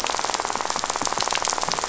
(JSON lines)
{"label": "biophony, rattle", "recorder": "SoundTrap 500"}